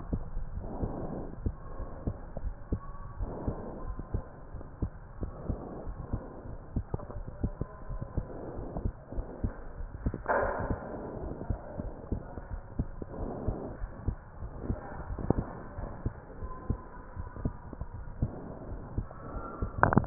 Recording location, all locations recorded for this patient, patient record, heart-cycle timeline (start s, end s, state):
aortic valve (AV)
aortic valve (AV)+pulmonary valve (PV)+tricuspid valve (TV)+mitral valve (MV)
#Age: Child
#Sex: Male
#Height: 139.0 cm
#Weight: 44.4 kg
#Pregnancy status: False
#Murmur: Absent
#Murmur locations: nan
#Most audible location: nan
#Systolic murmur timing: nan
#Systolic murmur shape: nan
#Systolic murmur grading: nan
#Systolic murmur pitch: nan
#Systolic murmur quality: nan
#Diastolic murmur timing: nan
#Diastolic murmur shape: nan
#Diastolic murmur grading: nan
#Diastolic murmur pitch: nan
#Diastolic murmur quality: nan
#Outcome: Normal
#Campaign: 2015 screening campaign
0.00	1.54	unannotated
1.54	1.78	diastole
1.78	1.88	S1
1.88	2.04	systole
2.04	2.16	S2
2.16	2.44	diastole
2.44	2.56	S1
2.56	2.70	systole
2.70	2.82	S2
2.82	3.16	diastole
3.16	3.30	S1
3.30	3.44	systole
3.44	3.58	S2
3.58	3.84	diastole
3.84	3.96	S1
3.96	4.10	systole
4.10	4.22	S2
4.22	4.54	diastole
4.54	4.66	S1
4.66	4.78	systole
4.78	4.90	S2
4.90	5.20	diastole
5.20	5.34	S1
5.34	5.46	systole
5.46	5.60	S2
5.60	5.86	diastole
5.86	5.98	S1
5.98	6.10	systole
6.10	6.22	S2
6.22	6.50	diastole
6.50	6.58	S1
6.58	6.72	systole
6.72	6.84	S2
6.84	7.14	diastole
7.14	7.26	S1
7.26	7.42	systole
7.42	7.56	S2
7.56	7.88	diastole
7.88	8.00	S1
8.00	8.14	systole
8.14	8.26	S2
8.26	8.54	diastole
8.54	8.66	S1
8.66	8.76	systole
8.76	8.90	S2
8.90	9.16	diastole
9.16	9.26	S1
9.26	9.40	systole
9.40	9.54	S2
9.54	9.80	diastole
9.80	9.92	S1
9.92	10.02	systole
10.02	10.14	S2
10.14	10.36	diastole
10.36	10.54	S1
10.54	10.68	systole
10.68	10.82	S2
10.82	11.14	diastole
11.14	11.24	S1
11.24	11.44	systole
11.44	11.56	S2
11.56	11.78	diastole
11.78	11.92	S1
11.92	12.08	systole
12.08	12.24	S2
12.24	12.52	diastole
12.52	12.62	S1
12.62	12.76	systole
12.76	12.92	S2
12.92	13.18	diastole
13.18	13.34	S1
13.34	13.46	systole
13.46	13.60	S2
13.60	13.82	diastole
13.82	13.92	S1
13.92	14.06	systole
14.06	14.18	S2
14.18	14.42	diastole
14.42	14.52	S1
14.52	14.64	systole
14.64	14.80	S2
14.80	15.08	diastole
15.08	15.20	S1
15.20	15.30	systole
15.30	15.46	S2
15.46	15.76	diastole
15.76	15.92	S1
15.92	16.04	systole
16.04	16.14	S2
16.14	16.42	diastole
16.42	16.54	S1
16.54	16.68	systole
16.68	16.82	S2
16.82	17.18	diastole
17.18	17.28	S1
17.28	17.40	systole
17.40	17.56	S2
17.56	17.92	diastole
17.92	18.08	S1
18.08	18.20	systole
18.20	18.32	S2
18.32	18.68	diastole
18.68	18.82	S1
18.82	18.96	systole
18.96	19.08	S2
19.08	19.32	diastole
19.32	20.06	unannotated